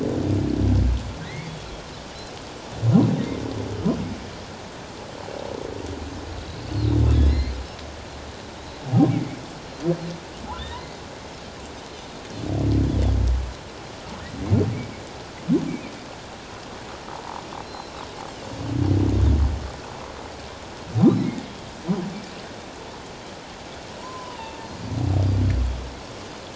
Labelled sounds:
1.2	1.7	humpback whale, 1.8 to 3.5 kHz
7.3	7.6	humpback whale, 1.9 to 4.2 kHz
9.1	9.4	humpback whale, 2.0 to 2.4 kHz
10.6	11.0	humpback whale, 1.8 to 2.1 kHz
17.6	18.0	Pacific white-sided dolphin, 4.0 to 5.5 kHz
21.2	21.4	humpback whale, 2.1 to 2.3 kHz
24.0	24.6	humpback whale, 0.84 to 3.0 kHz

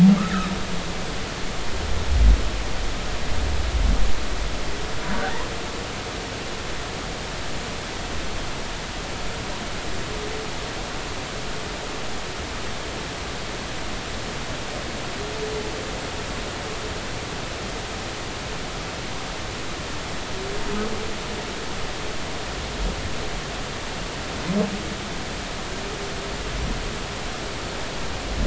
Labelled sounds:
0.2	0.5	humpback whale, 1.1 to 2.0 kHz
5.1	5.3	humpback whale, 1.4 to 1.7 kHz

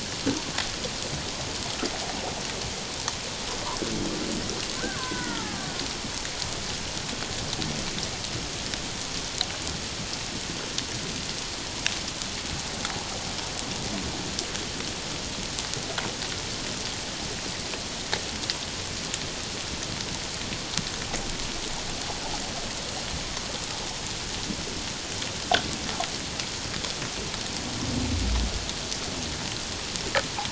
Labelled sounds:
4.8	5.7	killer whale, Bigg's (transient), 0.78 to 2.1 kHz

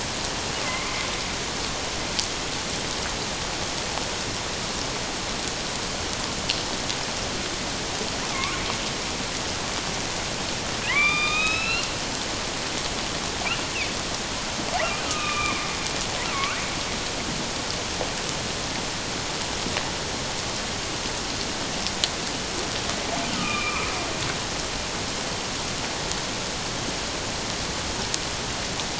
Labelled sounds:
0.6	0.9	killer whale, northern resident, A clan, AA subclan, 2.0 to 2.2 kHz
8.3	8.6	killer whale, northern resident, A clan, AA subclan, 1.0 to 2.5 kHz
10.9	11.9	killer whale, northern resident, A clan, AA subclan, 0.97 to 5.4 kHz
15.1	15.8	killer whale, northern resident, A clan, AA subclan, 1.0 to 2.6 kHz
16.3	16.6	killer whale, northern resident, A clan, AA subclan, 1.0 to 1.7 kHz
23.3	23.9	killer whale, northern resident, A clan, AA subclan, 0.97 to 2.7 kHz

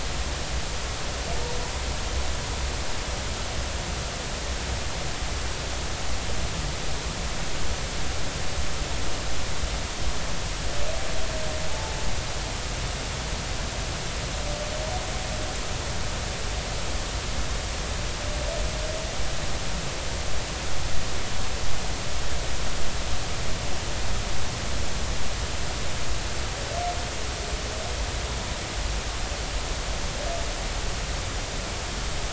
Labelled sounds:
11.7	12.0	humpback whale, 0.83 to 0.93 kHz

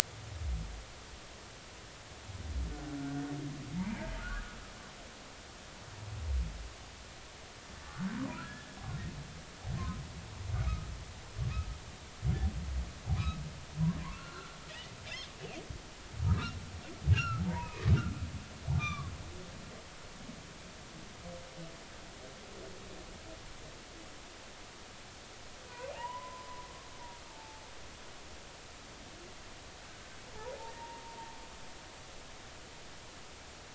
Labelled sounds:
3.0	4.5	humpback whale, 0.86 to 1.7 kHz
13.1	13.4	humpback whale, 0.99 to 1.3 kHz
14.0	14.5	humpback whale, 0.93 to 1.6 kHz
16.2	16.5	humpback whale, 1.2 to 1.4 kHz
17.1	17.8	humpback whale, 0.83 to 2.9 kHz
18.8	19.1	humpback whale, 1.0 to 3.8 kHz
25.7	26.5	humpback whale, 0.80 to 3.0 kHz
27.3	27.6	humpback whale, 0.80 to 0.93 kHz
30.8	31.0	humpback whale, 0.86 to 0.99 kHz

